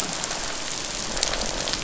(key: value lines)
label: biophony, croak
recorder: SoundTrap 500